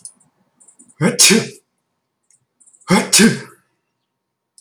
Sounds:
Sneeze